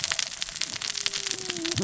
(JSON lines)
{"label": "biophony, cascading saw", "recorder": "SoundTrap 600 or HydroMoth"}